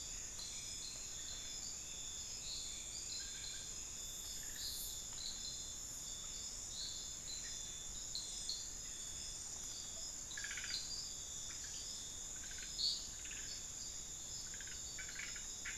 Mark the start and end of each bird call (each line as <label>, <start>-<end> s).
Hauxwell's Thrush (Turdus hauxwelli), 0.0-4.0 s